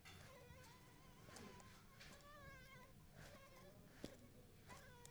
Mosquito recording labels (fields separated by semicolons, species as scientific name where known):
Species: Anopheles arabiensis; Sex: female; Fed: unfed; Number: one; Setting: cup